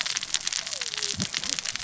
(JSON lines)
{"label": "biophony, cascading saw", "recorder": "SoundTrap 600 or HydroMoth"}